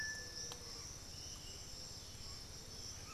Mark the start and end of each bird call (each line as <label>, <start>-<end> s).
Piratic Flycatcher (Legatus leucophaius), 0.0-3.1 s